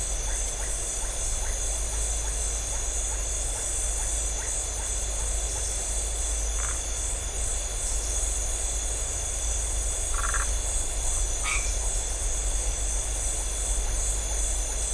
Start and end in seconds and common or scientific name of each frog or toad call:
0.0	5.3	Iporanga white-lipped frog
6.5	6.9	Phyllomedusa distincta
10.1	10.6	Phyllomedusa distincta
11.4	11.9	white-edged tree frog